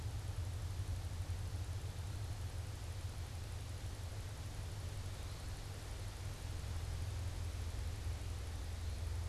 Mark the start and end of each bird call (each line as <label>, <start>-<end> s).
Eastern Wood-Pewee (Contopus virens), 0.0-9.3 s